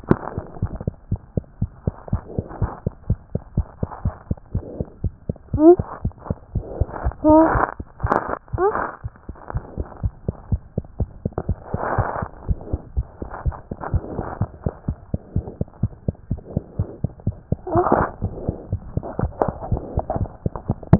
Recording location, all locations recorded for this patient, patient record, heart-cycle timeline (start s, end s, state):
mitral valve (MV)
aortic valve (AV)+pulmonary valve (PV)+tricuspid valve (TV)+mitral valve (MV)+mitral valve (MV)
#Age: nan
#Sex: Female
#Height: nan
#Weight: nan
#Pregnancy status: True
#Murmur: Absent
#Murmur locations: nan
#Most audible location: nan
#Systolic murmur timing: nan
#Systolic murmur shape: nan
#Systolic murmur grading: nan
#Systolic murmur pitch: nan
#Systolic murmur quality: nan
#Diastolic murmur timing: nan
#Diastolic murmur shape: nan
#Diastolic murmur grading: nan
#Diastolic murmur pitch: nan
#Diastolic murmur quality: nan
#Outcome: Normal
#Campaign: 2014 screening campaign
0.00	9.14	unannotated
9.14	9.28	systole
9.28	9.36	S2
9.36	9.52	diastole
9.52	9.64	S1
9.64	9.78	systole
9.78	9.86	S2
9.86	10.02	diastole
10.02	10.14	S1
10.14	10.26	systole
10.26	10.36	S2
10.36	10.50	diastole
10.50	10.62	S1
10.62	10.74	systole
10.74	10.84	S2
10.84	11.00	diastole
11.00	11.10	S1
11.10	11.22	systole
11.22	11.32	S2
11.32	11.48	diastole
11.48	11.58	S1
11.58	11.72	systole
11.72	11.80	S2
11.80	11.96	diastole
11.96	12.08	S1
12.08	12.20	systole
12.20	12.30	S2
12.30	12.46	diastole
12.46	12.60	S1
12.60	12.70	systole
12.70	12.80	S2
12.80	12.96	diastole
12.96	13.08	S1
13.08	13.20	systole
13.20	13.30	S2
13.30	13.44	diastole
13.44	13.56	S1
13.56	13.68	systole
13.68	13.76	S2
13.76	13.92	diastole
13.92	14.04	S1
14.04	14.14	systole
14.14	14.24	S2
14.24	14.40	diastole
14.40	14.50	S1
14.50	14.64	systole
14.64	14.72	S2
14.72	14.88	diastole
14.88	14.98	S1
14.98	15.12	systole
15.12	15.20	S2
15.20	15.34	diastole
15.34	15.46	S1
15.46	15.58	systole
15.58	15.68	S2
15.68	15.82	diastole
15.82	15.92	S1
15.92	16.06	systole
16.06	16.16	S2
16.16	16.30	diastole
16.30	16.40	S1
16.40	16.54	systole
16.54	16.64	S2
16.64	16.78	diastole
16.78	16.88	S1
16.88	17.02	systole
17.02	17.12	S2
17.12	17.26	diastole
17.26	17.36	S1
17.36	17.50	systole
17.50	17.58	S2
17.58	17.66	diastole
17.66	20.99	unannotated